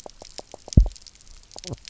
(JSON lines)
{"label": "biophony, knock croak", "recorder": "SoundTrap 300"}